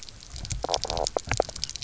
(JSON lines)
{"label": "biophony, knock croak", "recorder": "SoundTrap 300"}